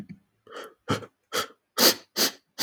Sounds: Sigh